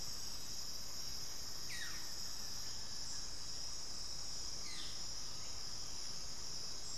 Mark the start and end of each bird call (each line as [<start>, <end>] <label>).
[1.09, 5.19] Buff-throated Woodcreeper (Xiphorhynchus guttatus)
[4.39, 6.49] Undulated Tinamou (Crypturellus undulatus)